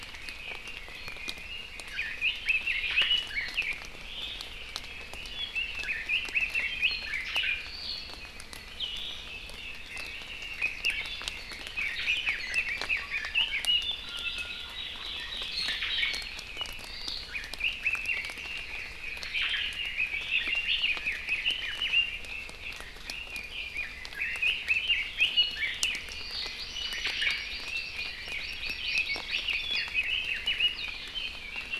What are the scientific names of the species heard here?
Leiothrix lutea, Drepanis coccinea, Chlorodrepanis virens, Myadestes obscurus